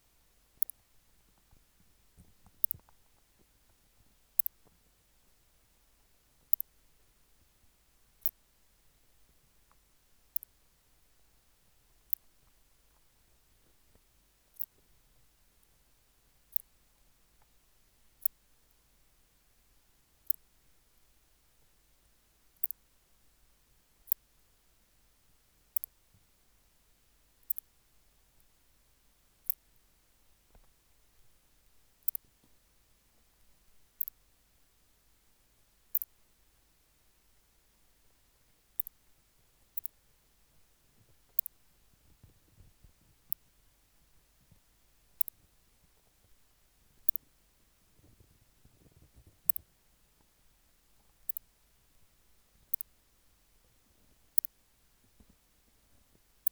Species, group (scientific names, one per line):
Leptophyes laticauda
Orthoptera